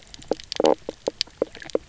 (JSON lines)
{"label": "biophony, knock croak", "recorder": "SoundTrap 300"}